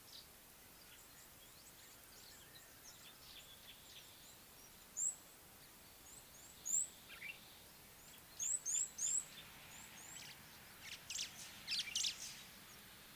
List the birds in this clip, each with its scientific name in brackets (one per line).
White-browed Sparrow-Weaver (Plocepasser mahali)
Red-cheeked Cordonbleu (Uraeginthus bengalus)